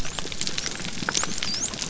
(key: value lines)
label: biophony
recorder: SoundTrap 300